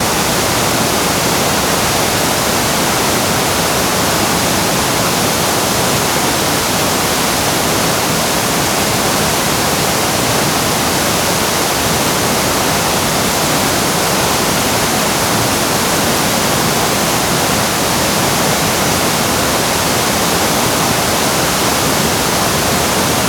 Is music playing?
no